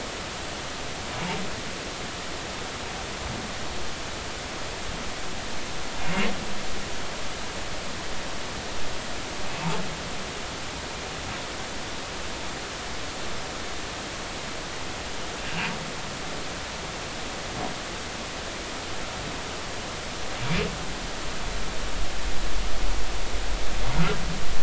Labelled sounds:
23.9	24.2	humpback whale, 1.2 to 1.5 kHz

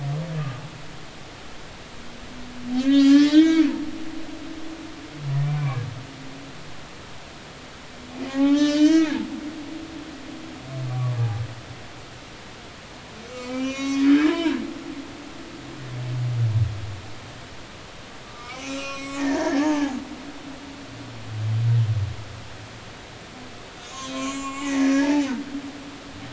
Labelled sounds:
2.8	3.7	humpback whale, 1.1 to 6.8 kHz
5.6	5.8	humpback whale, 0.96 to 2.4 kHz
8.3	9.1	humpback whale, 0.80 to 6.2 kHz
10.9	11.4	humpback whale, 0.80 to 1.2 kHz
13.3	15.0	humpback whale, 0.90 to 6.9 kHz
18.2	20.0	humpback whale, 0.80 to 8.0 kHz
23.8	25.2	humpback whale, 0.80 to 7.5 kHz

